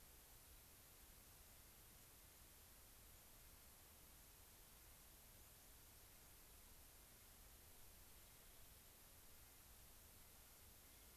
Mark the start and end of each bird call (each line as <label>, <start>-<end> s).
Clark's Nutcracker (Nucifraga columbiana), 7.0-11.2 s